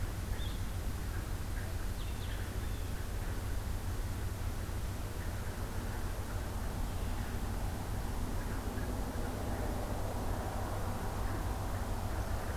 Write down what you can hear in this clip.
Blue-headed Vireo, Blue Jay